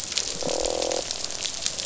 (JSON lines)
{"label": "biophony, croak", "recorder": "SoundTrap 500"}